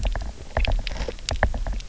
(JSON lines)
{"label": "biophony, knock", "recorder": "SoundTrap 300"}